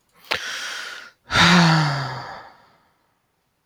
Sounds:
Sigh